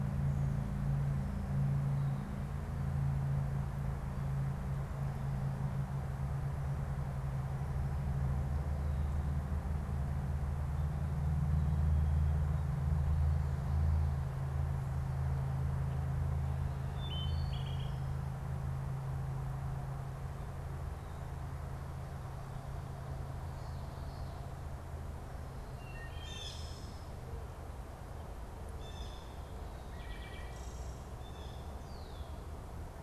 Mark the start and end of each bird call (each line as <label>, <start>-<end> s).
Wood Thrush (Hylocichla mustelina), 16.9-18.1 s
Wood Thrush (Hylocichla mustelina), 25.6-31.9 s
Blue Jay (Cyanocitta cristata), 26.1-31.9 s
Red-winged Blackbird (Agelaius phoeniceus), 31.8-32.4 s